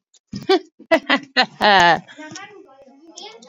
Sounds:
Laughter